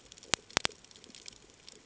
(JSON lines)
{"label": "ambient", "recorder": "HydroMoth"}